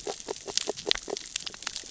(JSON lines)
{"label": "biophony, grazing", "recorder": "SoundTrap 600 or HydroMoth"}